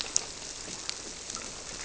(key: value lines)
label: biophony
recorder: SoundTrap 300